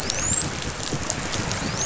{"label": "biophony, dolphin", "recorder": "SoundTrap 500"}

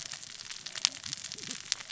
{"label": "biophony, cascading saw", "recorder": "SoundTrap 600 or HydroMoth"}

